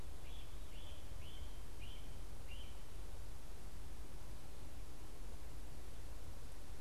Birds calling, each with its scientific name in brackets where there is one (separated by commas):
Great Crested Flycatcher (Myiarchus crinitus)